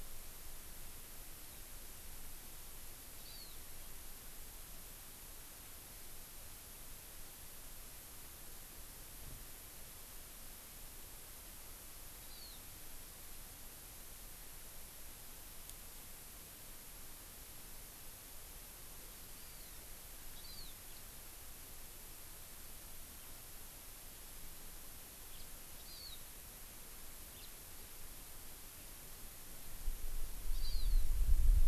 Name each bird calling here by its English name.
Hawaii Amakihi, House Finch